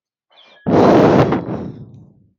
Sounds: Sigh